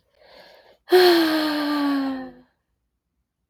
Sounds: Sigh